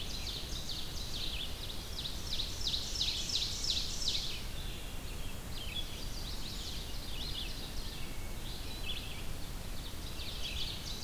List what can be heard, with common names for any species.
Ovenbird, Red-eyed Vireo, Chestnut-sided Warbler, Hermit Thrush